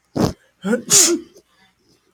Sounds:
Sneeze